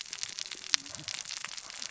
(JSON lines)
{"label": "biophony, cascading saw", "recorder": "SoundTrap 600 or HydroMoth"}